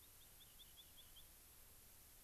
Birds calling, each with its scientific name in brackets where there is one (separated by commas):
Rock Wren (Salpinctes obsoletus)